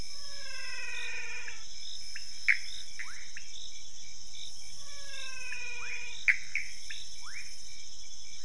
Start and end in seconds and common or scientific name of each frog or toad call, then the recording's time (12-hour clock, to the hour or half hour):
0.0	1.9	menwig frog
0.0	8.4	rufous frog
0.0	8.4	Pithecopus azureus
2.0	3.8	pointedbelly frog
4.6	6.4	menwig frog
midnight